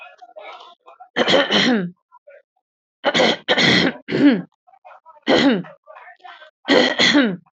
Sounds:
Throat clearing